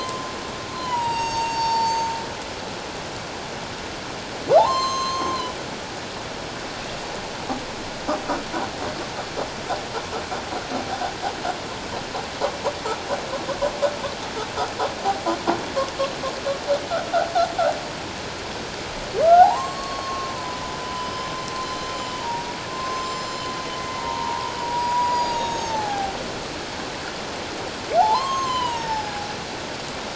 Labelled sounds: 0.8	2.1	humpback whale, 0.81 to 7.8 kHz
4.6	5.5	humpback whale, 0.78 to 7.6 kHz
19.2	21.9	humpback whale, 0.78 to 5.2 kHz
22.2	23.5	humpback whale, 0.84 to 7.3 kHz
24.0	26.1	humpback whale, 0.78 to 6.9 kHz
28.0	29.1	humpback whale, 0.78 to 6.5 kHz

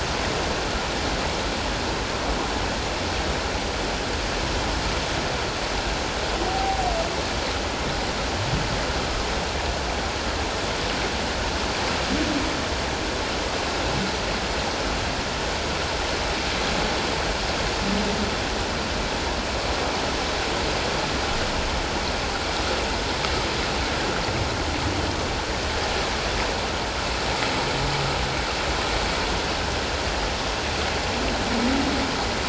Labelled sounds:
6.5	6.8	humpback whale, 0.78 to 0.84 kHz

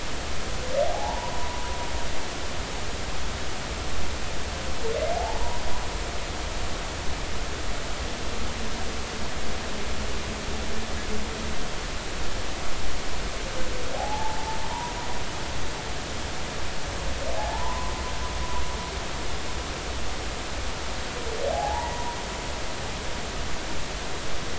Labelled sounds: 0.9	1.6	humpback whale, 0.80 to 1.0 kHz
5.1	5.6	humpback whale, 0.80 to 1.0 kHz
13.9	15.0	humpback whale, 0.80 to 1.1 kHz
17.4	17.9	humpback whale, 0.80 to 1.1 kHz
21.5	22.2	humpback whale, 0.80 to 2.0 kHz

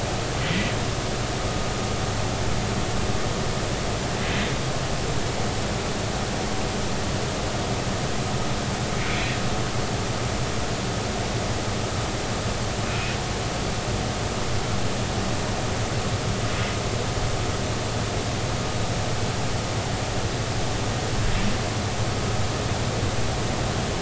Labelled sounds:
9.1	9.3	humpback whale, 2.1 to 2.5 kHz
12.9	13.2	humpback whale, 2.4 to 2.7 kHz

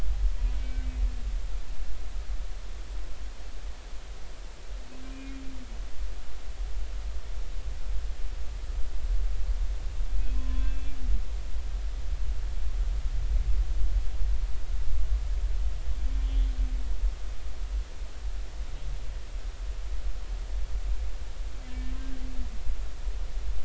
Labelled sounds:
0.6	0.9	humpback whale, 1.5 to 2.3 kHz
5.1	5.4	humpback whale, 2.3 to 2.5 kHz
10.3	10.9	humpback whale, 0.99 to 3.5 kHz
16.2	16.5	humpback whale, 3.1 to 3.4 kHz
21.7	21.9	humpback whale, 1.7 to 1.8 kHz

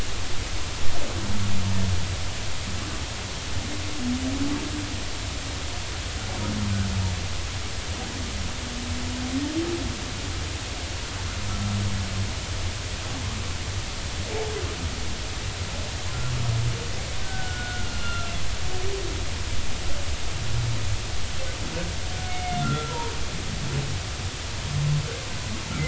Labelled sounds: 17.2	18.3	humpback whale, 1.3 to 4.3 kHz
22.3	23.1	humpback whale, 0.86 to 2.3 kHz

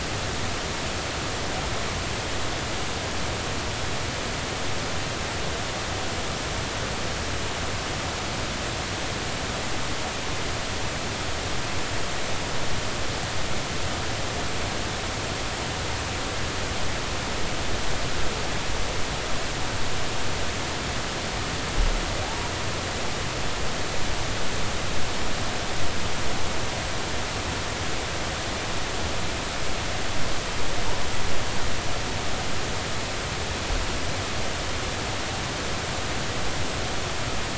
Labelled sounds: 22.2	22.5	humpback whale, 0.80 to 0.99 kHz

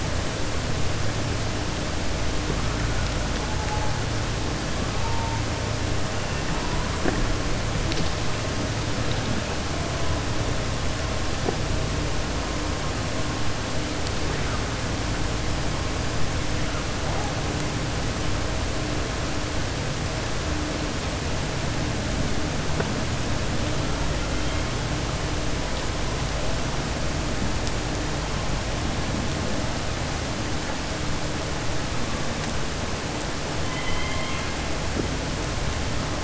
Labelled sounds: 33.6	34.5	killer whale, southern resident, 1.0 to 3.3 kHz

